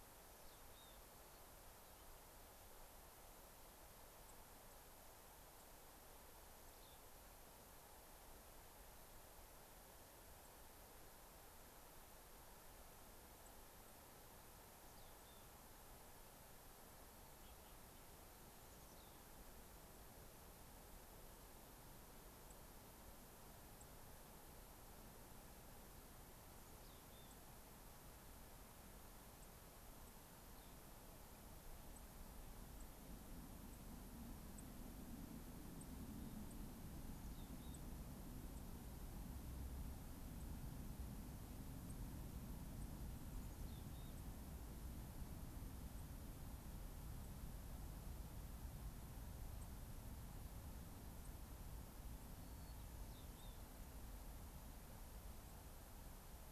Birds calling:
Mountain Chickadee (Poecile gambeli), White-crowned Sparrow (Zonotrichia leucophrys)

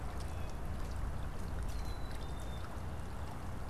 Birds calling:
Black-capped Chickadee (Poecile atricapillus), Blue Jay (Cyanocitta cristata)

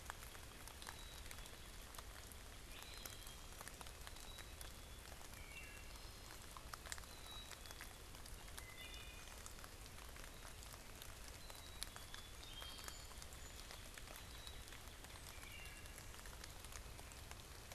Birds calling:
Black-capped Chickadee (Poecile atricapillus), Wood Thrush (Hylocichla mustelina), Song Sparrow (Melospiza melodia)

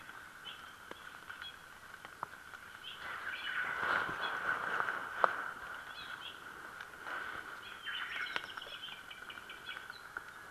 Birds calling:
Omao (Myadestes obscurus), Apapane (Himatione sanguinea)

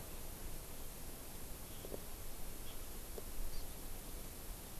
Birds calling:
Hawaii Amakihi (Chlorodrepanis virens)

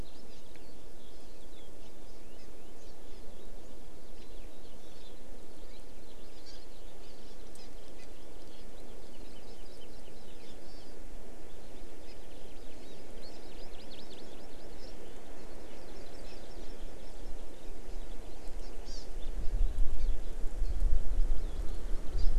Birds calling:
Hawaii Amakihi (Chlorodrepanis virens), Eurasian Skylark (Alauda arvensis)

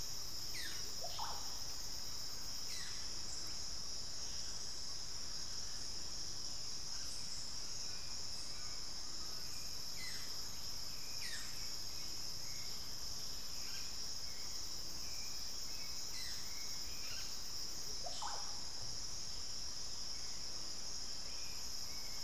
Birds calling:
Undulated Tinamou (Crypturellus undulatus), Buff-throated Woodcreeper (Xiphorhynchus guttatus), Hauxwell's Thrush (Turdus hauxwelli), Russet-backed Oropendola (Psarocolius angustifrons)

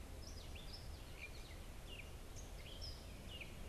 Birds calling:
Gray Catbird (Dumetella carolinensis), American Goldfinch (Spinus tristis)

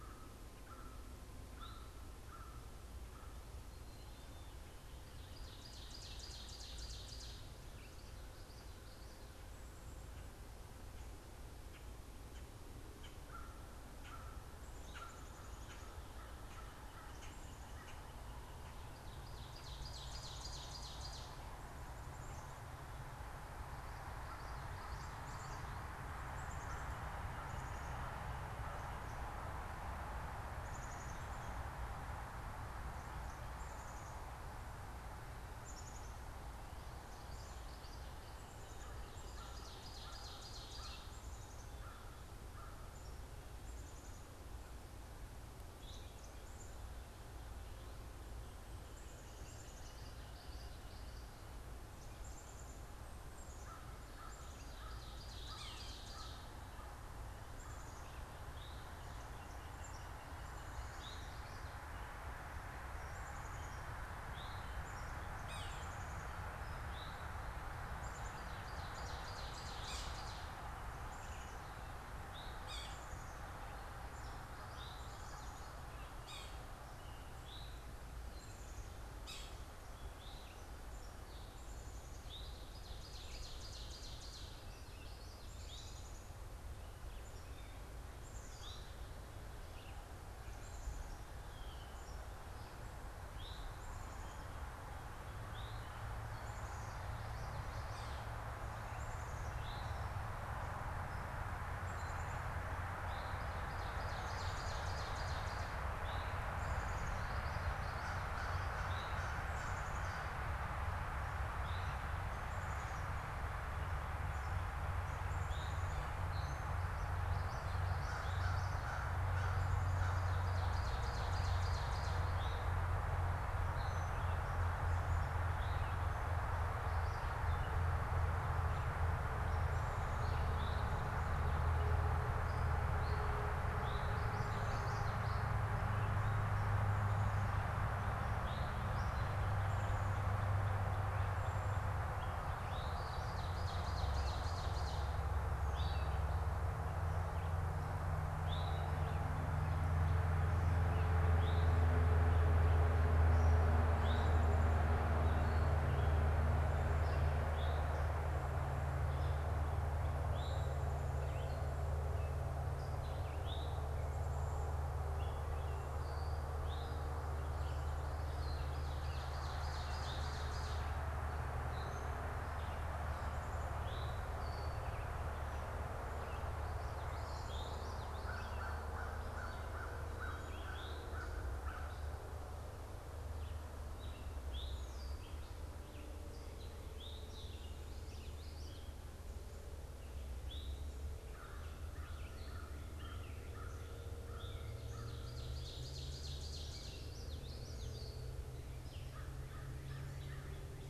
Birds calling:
Yellow-bellied Sapsucker (Sphyrapicus varius), Common Grackle (Quiscalus quiscula), American Crow (Corvus brachyrhynchos), Ovenbird (Seiurus aurocapilla), Common Yellowthroat (Geothlypis trichas), Black-capped Chickadee (Poecile atricapillus), Eastern Towhee (Pipilo erythrophthalmus), Red-eyed Vireo (Vireo olivaceus)

